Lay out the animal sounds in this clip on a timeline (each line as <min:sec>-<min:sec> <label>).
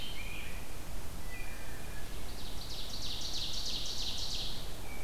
0:00.0-0:01.0 Rose-breasted Grosbeak (Pheucticus ludovicianus)
0:00.7-0:02.2 Wood Thrush (Hylocichla mustelina)
0:01.9-0:04.8 Ovenbird (Seiurus aurocapilla)